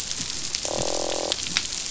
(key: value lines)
label: biophony, croak
recorder: SoundTrap 500